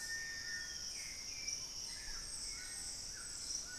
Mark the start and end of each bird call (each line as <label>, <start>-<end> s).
Cinereous Tinamou (Crypturellus cinereus), 0.0-3.8 s
Hauxwell's Thrush (Turdus hauxwelli), 0.0-3.8 s
White-throated Toucan (Ramphastos tucanus), 0.0-3.8 s
Black-spotted Bare-eye (Phlegopsis nigromaculata), 0.4-2.4 s